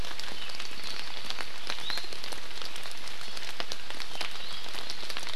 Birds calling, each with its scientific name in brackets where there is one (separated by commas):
Apapane (Himatione sanguinea), Iiwi (Drepanis coccinea)